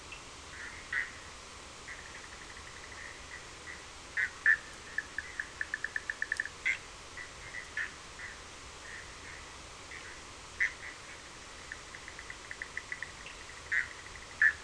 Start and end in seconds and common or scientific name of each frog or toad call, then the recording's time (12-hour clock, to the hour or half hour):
0.0	14.6	Bischoff's tree frog
13.0	13.6	Cochran's lime tree frog
2:30am